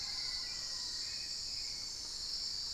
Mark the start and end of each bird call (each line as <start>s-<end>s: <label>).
0.0s-1.6s: Black-faced Antthrush (Formicarius analis)
0.0s-1.8s: Mealy Parrot (Amazona farinosa)
0.0s-2.7s: Hauxwell's Thrush (Turdus hauxwelli)